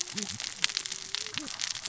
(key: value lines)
label: biophony, cascading saw
recorder: SoundTrap 600 or HydroMoth